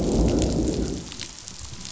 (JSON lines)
{"label": "biophony, growl", "recorder": "SoundTrap 500"}